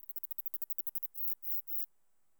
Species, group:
Neocallicrania selligera
Orthoptera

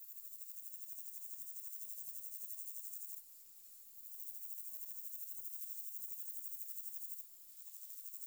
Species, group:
Stenobothrus fischeri
Orthoptera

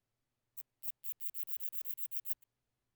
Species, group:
Phaneroptera falcata
Orthoptera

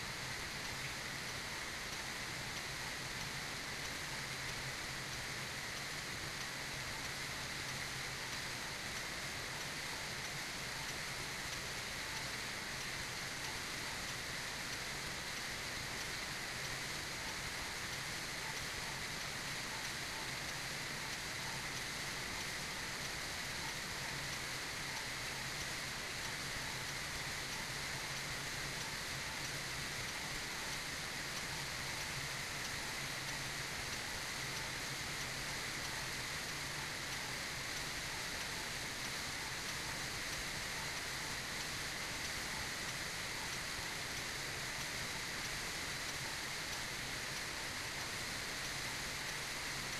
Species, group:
Tettigonia viridissima
Orthoptera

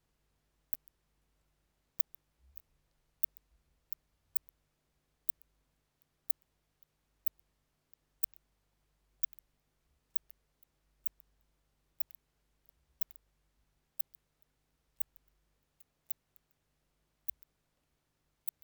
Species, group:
Leptophyes laticauda
Orthoptera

